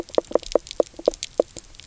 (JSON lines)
{"label": "biophony, knock croak", "recorder": "SoundTrap 300"}